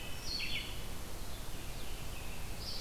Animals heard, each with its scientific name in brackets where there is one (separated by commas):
Wood Thrush (Hylocichla mustelina), American Robin (Turdus migratorius), Red-eyed Vireo (Vireo olivaceus)